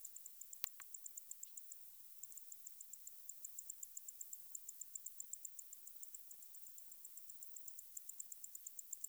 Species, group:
Decticus albifrons, Orthoptera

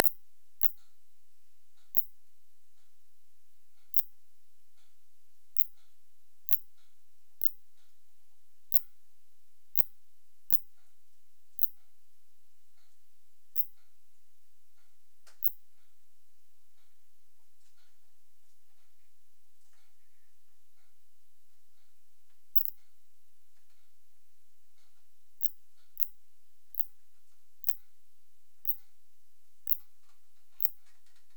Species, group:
Phaneroptera nana, Orthoptera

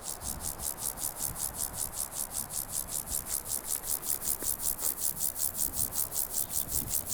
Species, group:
Chorthippus vagans, Orthoptera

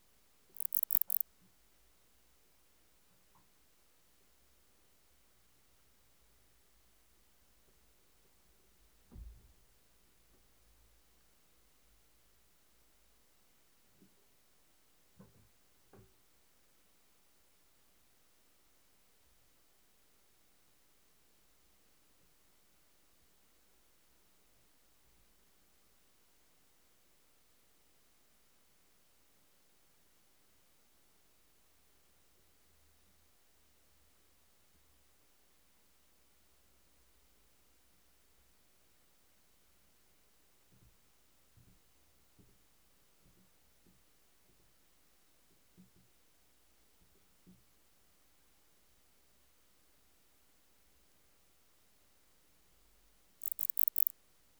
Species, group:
Barbitistes yersini, Orthoptera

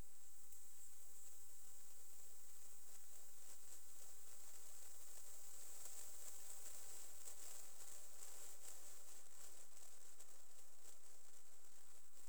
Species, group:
Platycleis albopunctata, Orthoptera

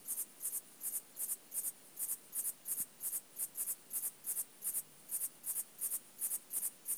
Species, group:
Liara magna, Orthoptera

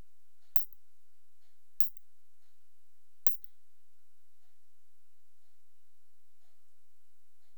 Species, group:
Isophya lemnotica, Orthoptera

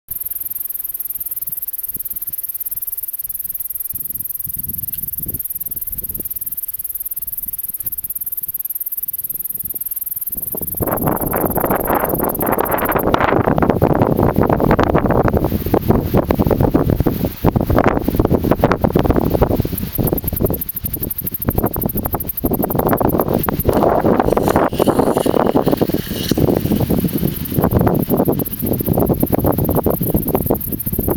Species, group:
Anabrus simplex, Orthoptera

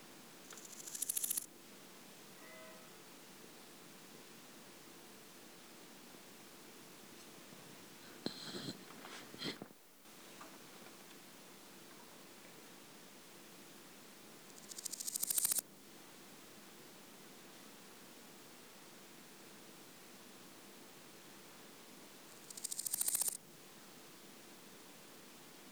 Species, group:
Chrysochraon dispar, Orthoptera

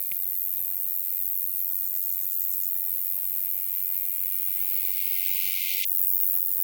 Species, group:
Roeseliana roeselii, Orthoptera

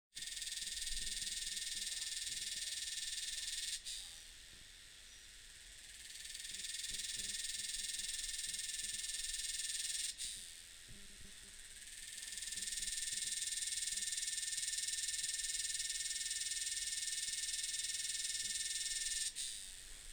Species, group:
Psaltoda harrisii, Cicadidae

